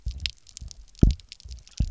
{"label": "biophony, double pulse", "recorder": "SoundTrap 300"}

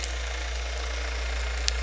{"label": "anthrophony, boat engine", "recorder": "SoundTrap 300"}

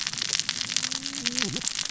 {"label": "biophony, cascading saw", "recorder": "SoundTrap 600 or HydroMoth"}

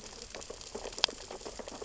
{"label": "biophony, sea urchins (Echinidae)", "recorder": "SoundTrap 600 or HydroMoth"}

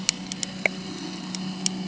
{"label": "anthrophony, boat engine", "recorder": "HydroMoth"}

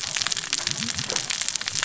{"label": "biophony, cascading saw", "recorder": "SoundTrap 600 or HydroMoth"}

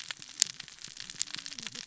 {"label": "biophony, cascading saw", "recorder": "SoundTrap 600 or HydroMoth"}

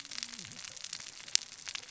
{"label": "biophony, cascading saw", "recorder": "SoundTrap 600 or HydroMoth"}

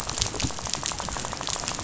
{"label": "biophony, rattle", "recorder": "SoundTrap 500"}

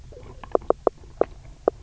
{"label": "biophony, knock croak", "recorder": "SoundTrap 300"}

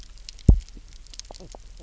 {"label": "biophony, double pulse", "recorder": "SoundTrap 300"}
{"label": "biophony, knock croak", "recorder": "SoundTrap 300"}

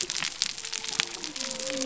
{"label": "biophony", "recorder": "SoundTrap 300"}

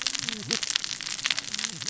{"label": "biophony, cascading saw", "recorder": "SoundTrap 600 or HydroMoth"}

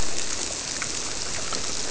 {"label": "biophony", "recorder": "SoundTrap 300"}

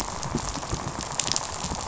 {"label": "biophony, rattle", "recorder": "SoundTrap 500"}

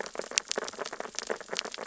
{"label": "biophony, sea urchins (Echinidae)", "recorder": "SoundTrap 600 or HydroMoth"}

